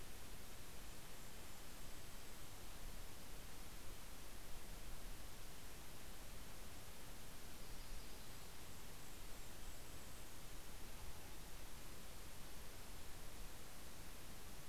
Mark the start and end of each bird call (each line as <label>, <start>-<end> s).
Red-breasted Nuthatch (Sitta canadensis), 0.0-12.9 s
Golden-crowned Kinglet (Regulus satrapa), 0.7-3.2 s
Yellow-rumped Warbler (Setophaga coronata), 6.9-8.9 s
Golden-crowned Kinglet (Regulus satrapa), 6.9-11.5 s